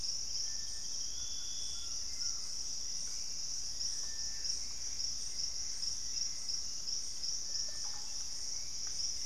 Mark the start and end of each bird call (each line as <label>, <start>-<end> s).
Hauxwell's Thrush (Turdus hauxwelli), 0.0-9.3 s
Collared Trogon (Trogon collaris), 0.9-2.6 s
Gray Antbird (Cercomacra cinerascens), 3.3-9.3 s
Russet-backed Oropendola (Psarocolius angustifrons), 7.5-8.6 s